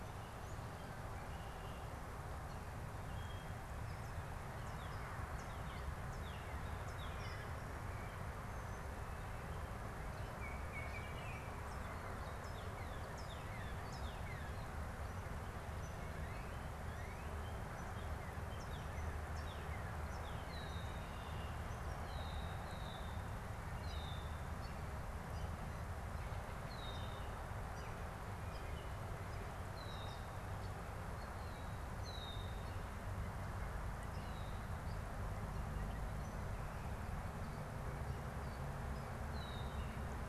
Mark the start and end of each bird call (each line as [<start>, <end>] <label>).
[3.60, 7.90] Northern Cardinal (Cardinalis cardinalis)
[9.90, 11.60] Baltimore Oriole (Icterus galbula)
[11.40, 20.90] Northern Cardinal (Cardinalis cardinalis)
[20.40, 32.80] Red-winged Blackbird (Agelaius phoeniceus)
[39.20, 40.00] Red-winged Blackbird (Agelaius phoeniceus)